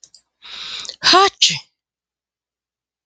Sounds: Sneeze